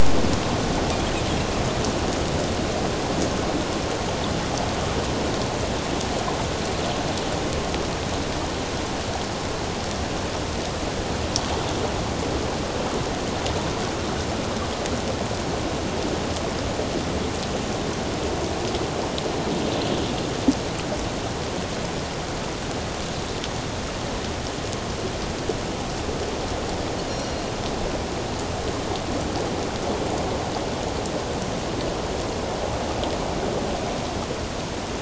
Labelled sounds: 27.1	27.5	Pacific white-sided dolphin, 4.1 to 5.8 kHz

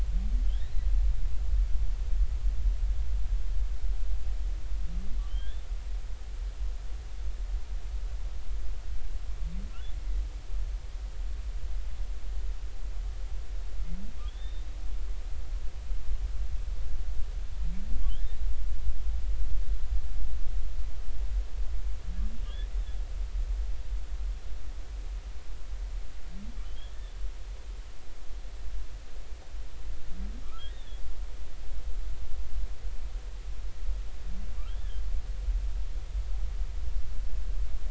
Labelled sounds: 5.3	5.6	humpback whale, 2.9 to 3.7 kHz
14.2	14.6	humpback whale, 3.1 to 3.8 kHz
26.6	27.1	humpback whale, 3.0 to 3.6 kHz
30.7	31.0	humpback whale, 3.3 to 3.7 kHz
34.7	35.0	humpback whale, 3.0 to 3.6 kHz

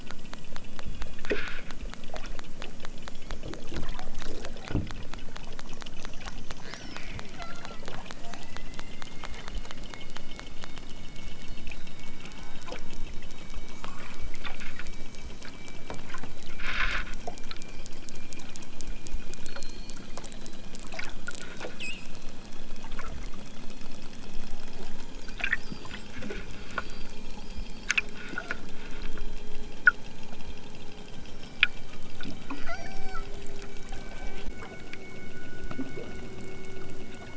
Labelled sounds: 1.2	1.7	killer whale, southern Alaska resident, 0.97 to 4.9 kHz
6.6	7.8	killer whale, southern Alaska resident, 0.37 to 6.3 kHz
12.1	13.1	killer whale, southern Alaska resident, 0.51 to 2.2 kHz
16.6	17.1	killer whale, southern Alaska resident, 0.69 to 5.9 kHz
32.6	33.3	killer whale, southern Alaska resident, 0.37 to 8.0 kHz

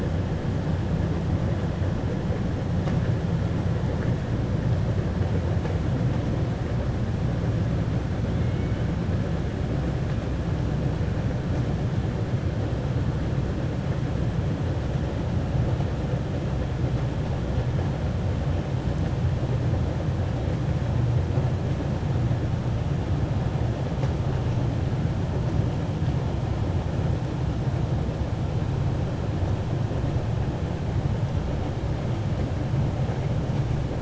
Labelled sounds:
8.3	8.8	killer whale, 1.5 to 3.1 kHz

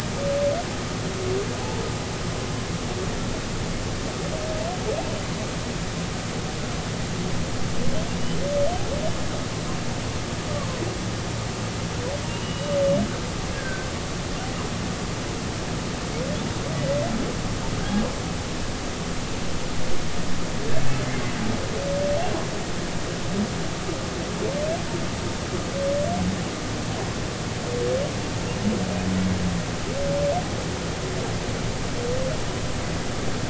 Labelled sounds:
12.4	12.7	humpback whale, 2.8 to 3.0 kHz
13.5	13.9	humpback whale, 1.5 to 1.8 kHz

